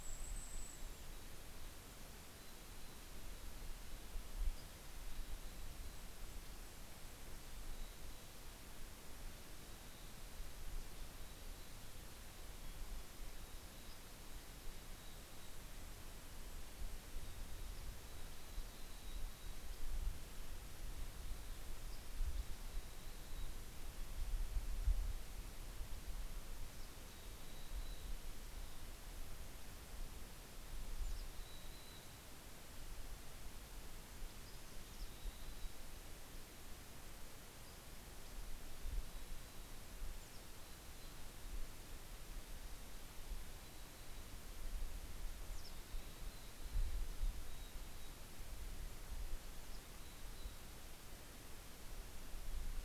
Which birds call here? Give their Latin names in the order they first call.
Regulus satrapa, Poecile gambeli, Empidonax oberholseri